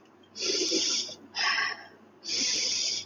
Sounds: Sniff